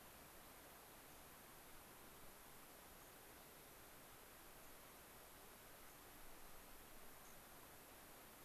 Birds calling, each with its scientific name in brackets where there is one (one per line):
unidentified bird